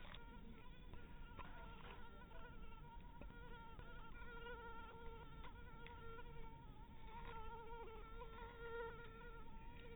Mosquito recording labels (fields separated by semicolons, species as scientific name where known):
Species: mosquito; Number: one; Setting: cup